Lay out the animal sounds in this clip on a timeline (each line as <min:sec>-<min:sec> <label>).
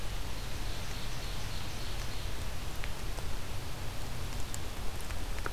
0:00.0-0:02.4 Ovenbird (Seiurus aurocapilla)